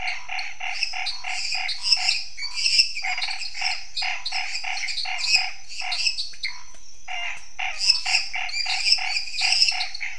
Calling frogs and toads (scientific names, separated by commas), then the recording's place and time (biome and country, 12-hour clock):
Boana raniceps, Dendropsophus minutus, Dendropsophus nanus, Pithecopus azureus
Cerrado, Brazil, 9:15pm